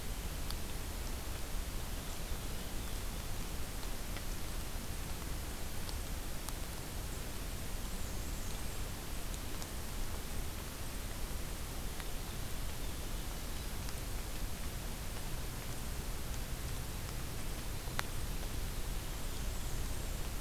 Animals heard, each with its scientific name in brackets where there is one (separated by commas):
Black-and-white Warbler (Mniotilta varia)